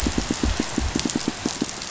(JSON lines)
{"label": "biophony, pulse", "recorder": "SoundTrap 500"}